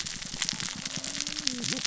{"label": "biophony, cascading saw", "recorder": "SoundTrap 600 or HydroMoth"}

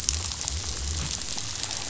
{"label": "biophony", "recorder": "SoundTrap 500"}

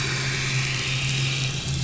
{"label": "anthrophony, boat engine", "recorder": "SoundTrap 500"}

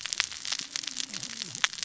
{"label": "biophony, cascading saw", "recorder": "SoundTrap 600 or HydroMoth"}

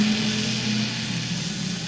{"label": "anthrophony, boat engine", "recorder": "SoundTrap 500"}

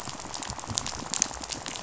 {"label": "biophony, rattle", "recorder": "SoundTrap 500"}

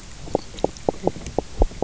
{"label": "biophony, knock croak", "recorder": "SoundTrap 300"}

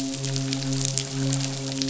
{"label": "biophony, midshipman", "recorder": "SoundTrap 500"}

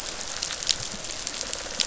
{"label": "biophony", "recorder": "SoundTrap 500"}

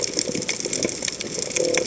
{"label": "biophony", "recorder": "HydroMoth"}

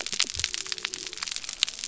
{"label": "biophony", "recorder": "SoundTrap 300"}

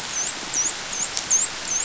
{"label": "biophony, dolphin", "recorder": "SoundTrap 500"}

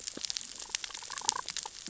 {"label": "biophony, damselfish", "recorder": "SoundTrap 600 or HydroMoth"}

